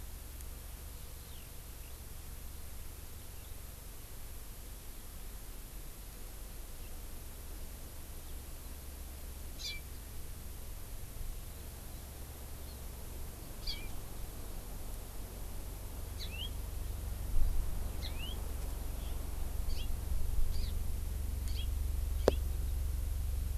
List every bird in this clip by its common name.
Eurasian Skylark, Hawaii Amakihi, House Finch